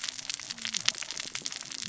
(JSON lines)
{"label": "biophony, cascading saw", "recorder": "SoundTrap 600 or HydroMoth"}